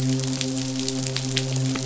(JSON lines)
{"label": "biophony, midshipman", "recorder": "SoundTrap 500"}